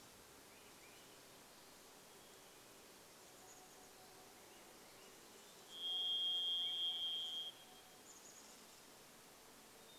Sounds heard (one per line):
insect buzz
Varied Thrush song
Hermit Thrush song
Swainson's Thrush song
Chestnut-backed Chickadee call